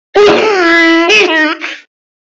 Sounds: Sniff